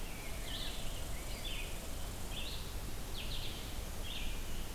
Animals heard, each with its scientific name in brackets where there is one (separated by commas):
Rose-breasted Grosbeak (Pheucticus ludovicianus), Red Squirrel (Tamiasciurus hudsonicus), Red-eyed Vireo (Vireo olivaceus)